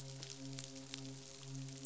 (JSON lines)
{"label": "biophony, midshipman", "recorder": "SoundTrap 500"}